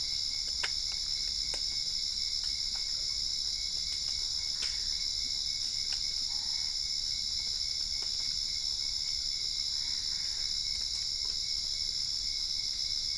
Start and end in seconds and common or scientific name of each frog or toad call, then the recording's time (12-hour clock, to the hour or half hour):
6.1	6.9	Boana albopunctata
9.7	10.6	Boana albopunctata
~8pm